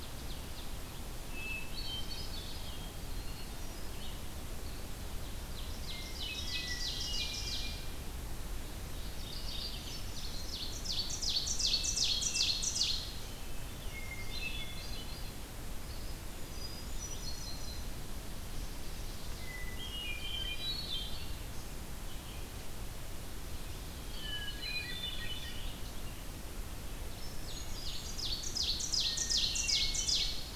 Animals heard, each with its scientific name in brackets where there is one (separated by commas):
Hermit Thrush (Catharus guttatus), Red-eyed Vireo (Vireo olivaceus), Ovenbird (Seiurus aurocapilla), Mourning Warbler (Geothlypis philadelphia)